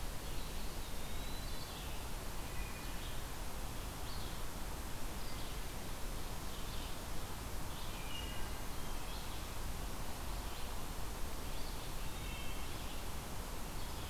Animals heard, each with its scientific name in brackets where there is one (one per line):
Eastern Wood-Pewee (Contopus virens)
Wood Thrush (Hylocichla mustelina)
Red-eyed Vireo (Vireo olivaceus)